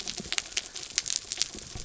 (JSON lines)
{"label": "anthrophony, mechanical", "recorder": "SoundTrap 300"}